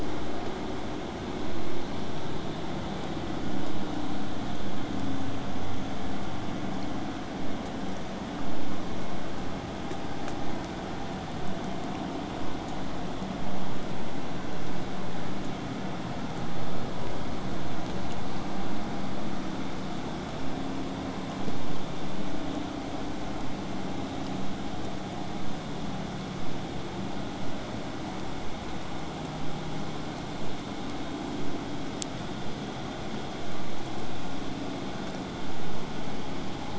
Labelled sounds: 23.4	28.4	vessel noise, 0 to 8.0 kHz

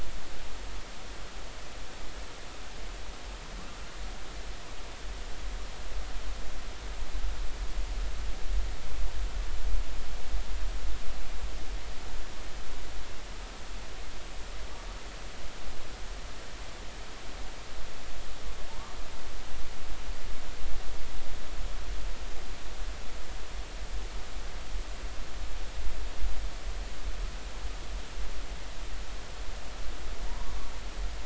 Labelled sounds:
30.3	30.5	humpback whale, 0.90 to 1.2 kHz

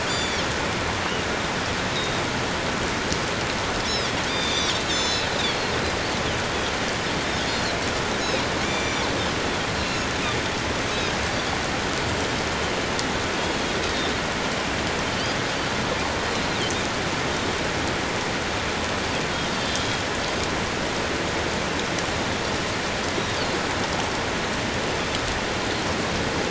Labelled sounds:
0.0	0.4	Pacific white-sided dolphin, 3.1 to 7.2 kHz
1.9	2.2	Pacific white-sided dolphin, 3.7 to 4.0 kHz
3.9	5.3	Pacific white-sided dolphin, 3.2 to 7.2 kHz
7.5	9.1	Pacific white-sided dolphin, 2.1 to 7.1 kHz
9.7	10.1	Pacific white-sided dolphin, 2.6 to 4.2 kHz
13.8	14.1	Pacific white-sided dolphin, 3.5 to 3.8 kHz
19.6	20.0	Pacific white-sided dolphin, 3.1 to 3.6 kHz

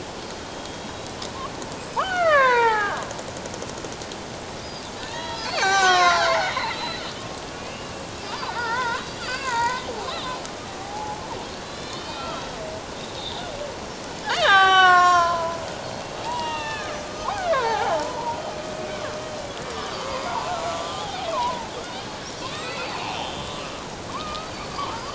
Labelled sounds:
0.5	1.1	killer whale, Bigg's (transient), 3.2 to 3.9 kHz
2.0	3.0	killer whale, Bigg's (transient), 0.78 to 4.5 kHz
5.0	7.1	killer whale, Bigg's (transient), 0.78 to 7.5 kHz
7.5	7.9	killer whale, Bigg's (transient), 2.3 to 2.9 kHz
8.4	10.4	killer whale, Bigg's (transient), 0.84 to 4.8 kHz
10.8	13.5	killer whale, Bigg's (transient), 0.78 to 4.2 kHz
14.2	15.6	killer whale, Bigg's (transient), 0.78 to 7.8 kHz
16.2	19.1	killer whale, Bigg's (transient), 0.78 to 3.8 kHz
19.8	21.7	killer whale, Bigg's (transient), 0.78 to 4.9 kHz
22.4	23.6	killer whale, Bigg's (transient), 0.97 to 4.6 kHz
24.1	25.0	killer whale, Bigg's (transient), 0.88 to 4.7 kHz

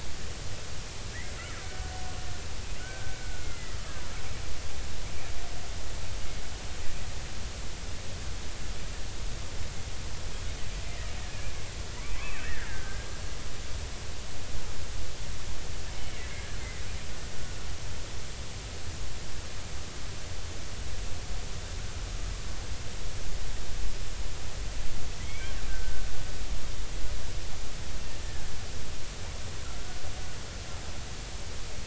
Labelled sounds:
1.6	1.9	killer whale, Bigg's (transient), 1.4 to 1.6 kHz
2.8	3.8	killer whale, Bigg's (transient), 1.3 to 2.2 kHz
10.8	11.1	killer whale, Bigg's (transient), 1.9 to 2.1 kHz
12.1	13.1	killer whale, Bigg's (transient), 0.96 to 2.7 kHz
16.3	16.6	killer whale, Bigg's (transient), 1.6 to 1.8 kHz
25.2	26.0	killer whale, Bigg's (transient), 1.4 to 2.4 kHz

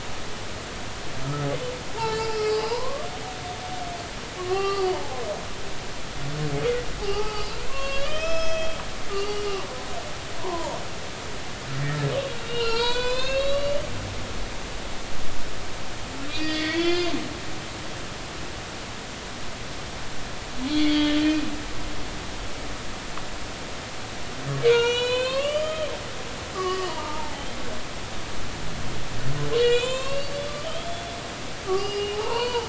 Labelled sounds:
2.0	3.1	humpback whale, 0.83 to 5.0 kHz
4.4	5.8	humpback whale, 0.80 to 2.8 kHz
7.0	9.4	humpback whale, 0.80 to 6.6 kHz
10.4	10.8	humpback whale, 0.86 to 1.2 kHz
12.4	13.8	humpback whale, 0.86 to 5.3 kHz
16.3	17.1	humpback whale, 1.3 to 5.1 kHz
20.7	21.5	humpback whale, 2.4 to 3.4 kHz
24.7	25.9	humpback whale, 0.90 to 7.7 kHz
26.5	27.5	humpback whale, 0.80 to 5.0 kHz
29.6	30.4	humpback whale, 0.96 to 7.6 kHz
31.7	32.6	humpback whale, 0.80 to 5.0 kHz

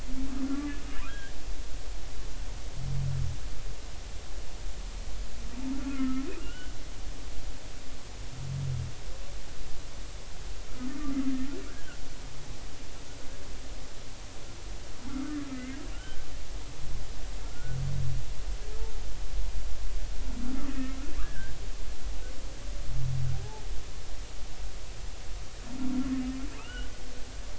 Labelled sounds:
0.5	1.3	humpback whale, 0.93 to 1.8 kHz
5.9	6.7	humpback whale, 1.2 to 3.0 kHz
11.7	12.0	humpback whale, 1.3 to 1.7 kHz
15.5	16.5	humpback whale, 1.1 to 2.2 kHz
17.5	17.8	humpback whale, 1.3 to 1.5 kHz
20.7	21.6	humpback whale, 1.4 to 2.7 kHz
26.6	26.9	humpback whale, 1.0 to 3.1 kHz

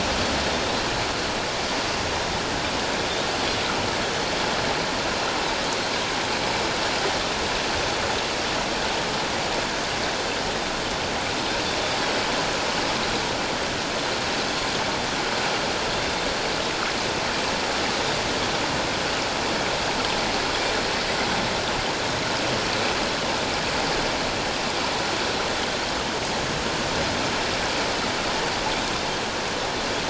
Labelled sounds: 15.9	16.3	Pacific white-sided dolphin, 3.5 to 3.7 kHz

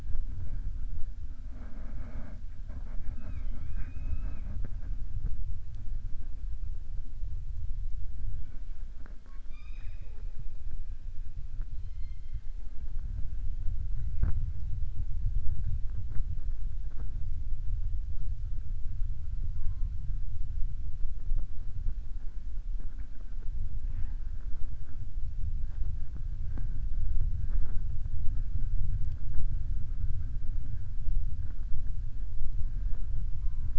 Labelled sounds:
8.9	10.3	killer whale, southern resident, 0.36 to 6.2 kHz

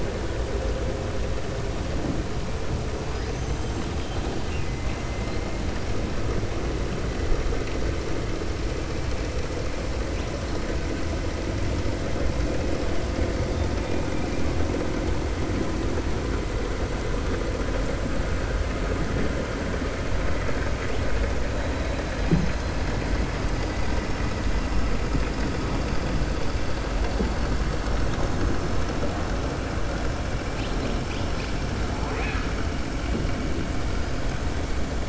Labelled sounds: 3.1	4.7	killer whale, 2.0 to 7.6 kHz

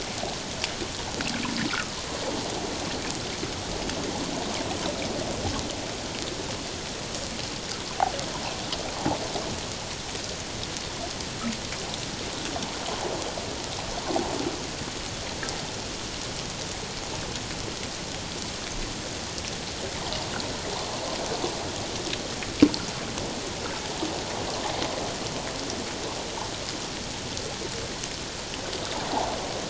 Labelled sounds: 1.7	1.9	water noise, 1.2 to 1.6 kHz

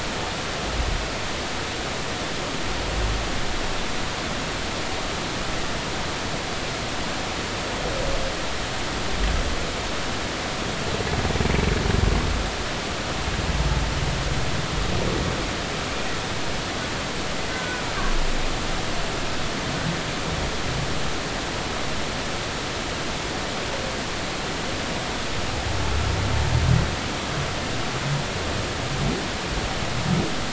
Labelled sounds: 17.5	17.9	humpback whale, 1.4 to 1.6 kHz

